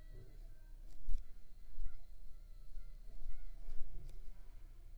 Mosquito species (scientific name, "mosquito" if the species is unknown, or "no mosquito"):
Anopheles arabiensis